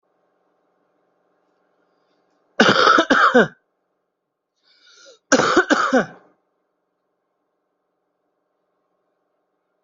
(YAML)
expert_labels:
- quality: good
  cough_type: dry
  dyspnea: false
  wheezing: false
  stridor: false
  choking: false
  congestion: false
  nothing: true
  diagnosis: upper respiratory tract infection
  severity: mild
gender: female
respiratory_condition: true
fever_muscle_pain: false
status: COVID-19